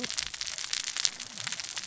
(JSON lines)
{"label": "biophony, cascading saw", "recorder": "SoundTrap 600 or HydroMoth"}